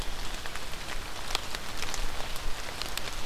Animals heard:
forest ambience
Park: Marsh-Billings-Rockefeller National Historical Park